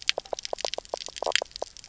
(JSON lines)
{"label": "biophony, knock croak", "recorder": "SoundTrap 300"}